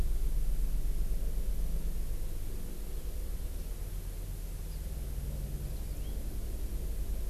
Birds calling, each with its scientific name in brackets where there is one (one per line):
House Finch (Haemorhous mexicanus)